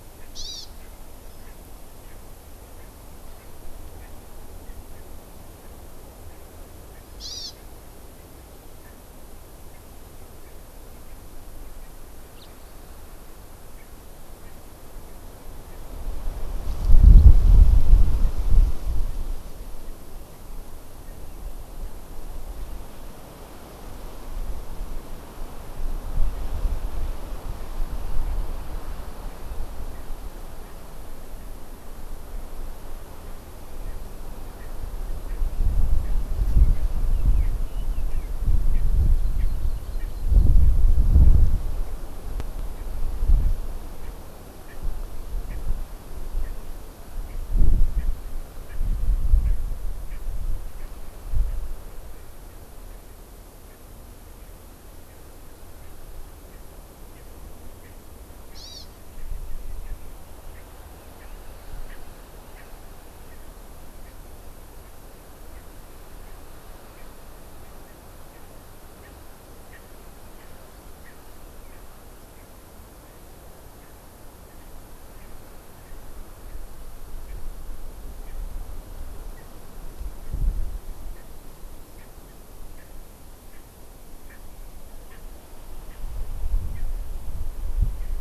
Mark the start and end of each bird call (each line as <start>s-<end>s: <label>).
0.1s-0.3s: Erckel's Francolin (Pternistis erckelii)
0.3s-0.6s: Hawaii Amakihi (Chlorodrepanis virens)
0.7s-0.9s: Erckel's Francolin (Pternistis erckelii)
1.4s-1.5s: Erckel's Francolin (Pternistis erckelii)
2.0s-2.1s: Erckel's Francolin (Pternistis erckelii)
2.7s-2.9s: Erckel's Francolin (Pternistis erckelii)
3.3s-3.4s: Erckel's Francolin (Pternistis erckelii)
3.9s-4.1s: Erckel's Francolin (Pternistis erckelii)
6.9s-7.0s: Erckel's Francolin (Pternistis erckelii)
7.1s-7.5s: Hawaii Amakihi (Chlorodrepanis virens)
7.5s-7.6s: Erckel's Francolin (Pternistis erckelii)
8.8s-8.9s: Erckel's Francolin (Pternistis erckelii)
10.3s-10.5s: Erckel's Francolin (Pternistis erckelii)
12.3s-12.5s: House Finch (Haemorhous mexicanus)
13.7s-13.8s: Erckel's Francolin (Pternistis erckelii)
14.4s-14.5s: Erckel's Francolin (Pternistis erckelii)
15.6s-15.8s: Erckel's Francolin (Pternistis erckelii)
34.5s-34.7s: Erckel's Francolin (Pternistis erckelii)
35.2s-35.4s: Erckel's Francolin (Pternistis erckelii)
36.0s-36.1s: Erckel's Francolin (Pternistis erckelii)
36.4s-38.3s: Red-billed Leiothrix (Leiothrix lutea)
38.7s-38.8s: Erckel's Francolin (Pternistis erckelii)
39.1s-40.6s: Hawaii Amakihi (Chlorodrepanis virens)
39.3s-39.4s: Erckel's Francolin (Pternistis erckelii)
39.9s-40.0s: Erckel's Francolin (Pternistis erckelii)
42.7s-42.8s: Erckel's Francolin (Pternistis erckelii)
43.9s-44.1s: Erckel's Francolin (Pternistis erckelii)
44.6s-44.7s: Erckel's Francolin (Pternistis erckelii)
45.4s-45.5s: Erckel's Francolin (Pternistis erckelii)
46.3s-46.5s: Erckel's Francolin (Pternistis erckelii)
47.2s-47.4s: Erckel's Francolin (Pternistis erckelii)
47.9s-48.0s: Erckel's Francolin (Pternistis erckelii)
48.6s-48.7s: Erckel's Francolin (Pternistis erckelii)
49.4s-49.5s: Erckel's Francolin (Pternistis erckelii)
50.0s-50.2s: Erckel's Francolin (Pternistis erckelii)
50.7s-50.8s: Erckel's Francolin (Pternistis erckelii)
53.6s-53.7s: Erckel's Francolin (Pternistis erckelii)
55.0s-55.1s: Erckel's Francolin (Pternistis erckelii)
56.4s-56.6s: Erckel's Francolin (Pternistis erckelii)
57.1s-57.2s: Erckel's Francolin (Pternistis erckelii)
57.8s-57.9s: Erckel's Francolin (Pternistis erckelii)
58.5s-58.8s: Hawaii Amakihi (Chlorodrepanis virens)
59.1s-59.2s: Erckel's Francolin (Pternistis erckelii)
59.8s-59.9s: Erckel's Francolin (Pternistis erckelii)
60.5s-60.6s: Erckel's Francolin (Pternistis erckelii)
61.1s-61.3s: Erckel's Francolin (Pternistis erckelii)
61.8s-61.9s: Erckel's Francolin (Pternistis erckelii)
62.5s-62.6s: Erckel's Francolin (Pternistis erckelii)
64.0s-64.1s: Erckel's Francolin (Pternistis erckelii)
65.5s-65.6s: Erckel's Francolin (Pternistis erckelii)
66.9s-67.1s: Erckel's Francolin (Pternistis erckelii)
68.3s-68.4s: Erckel's Francolin (Pternistis erckelii)
69.0s-69.1s: Erckel's Francolin (Pternistis erckelii)
69.6s-69.8s: Erckel's Francolin (Pternistis erckelii)
70.3s-70.4s: Erckel's Francolin (Pternistis erckelii)
71.0s-71.1s: Erckel's Francolin (Pternistis erckelii)
71.6s-71.8s: Erckel's Francolin (Pternistis erckelii)
72.3s-72.5s: Erckel's Francolin (Pternistis erckelii)
75.1s-75.3s: Erckel's Francolin (Pternistis erckelii)
77.2s-77.3s: Erckel's Francolin (Pternistis erckelii)
78.2s-78.3s: Erckel's Francolin (Pternistis erckelii)
79.3s-79.4s: Erckel's Francolin (Pternistis erckelii)
81.1s-81.2s: Erckel's Francolin (Pternistis erckelii)
81.9s-82.0s: Erckel's Francolin (Pternistis erckelii)
82.7s-82.9s: Erckel's Francolin (Pternistis erckelii)
83.5s-83.6s: Erckel's Francolin (Pternistis erckelii)
84.2s-84.4s: Erckel's Francolin (Pternistis erckelii)
85.0s-85.2s: Erckel's Francolin (Pternistis erckelii)
85.8s-86.0s: Erckel's Francolin (Pternistis erckelii)
86.7s-86.8s: Erckel's Francolin (Pternistis erckelii)